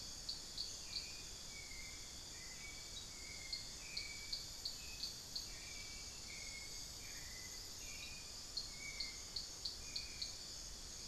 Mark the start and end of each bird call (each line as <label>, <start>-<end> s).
Hauxwell's Thrush (Turdus hauxwelli), 0.0-10.3 s
unidentified bird, 0.0-11.1 s
Amazonian Pygmy-Owl (Glaucidium hardyi), 7.8-9.4 s